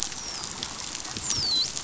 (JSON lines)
{"label": "biophony, dolphin", "recorder": "SoundTrap 500"}